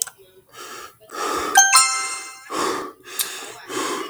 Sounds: Sigh